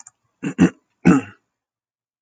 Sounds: Throat clearing